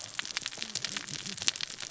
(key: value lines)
label: biophony, cascading saw
recorder: SoundTrap 600 or HydroMoth